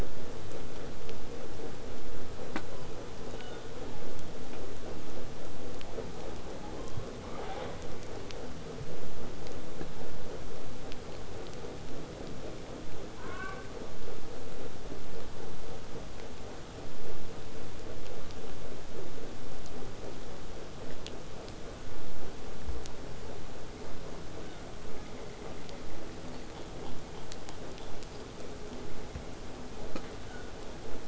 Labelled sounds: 3.0	4.2	killer whale, southern resident, J pod, call S07, 0.66 to 7.1 kHz
6.5	7.7	killer whale, southern resident, 0.38 to 4.8 kHz
13.2	13.7	killer whale, southern resident, J pod, call S04, 0.63 to 4.2 kHz
30.3	30.5	killer whale, southern resident, 1.2 to 3.7 kHz

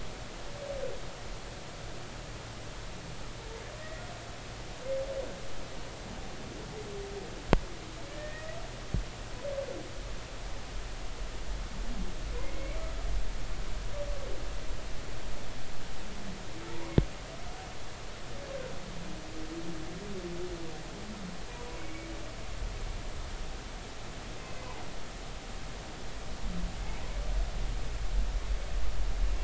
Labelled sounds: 3.8	4.0	humpback whale, 1.8 to 2.0 kHz
8.1	8.5	humpback whale, 1.7 to 2.0 kHz
12.4	12.8	humpback whale, 2.0 to 2.4 kHz
16.7	17.1	humpback whale, 0.86 to 2.2 kHz
21.8	22.1	humpback whale, 2.2 to 2.3 kHz

